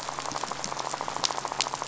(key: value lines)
label: biophony, rattle
recorder: SoundTrap 500